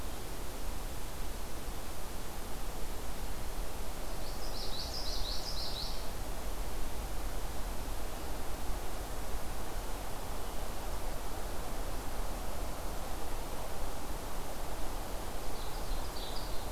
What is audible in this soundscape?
Common Yellowthroat, Ovenbird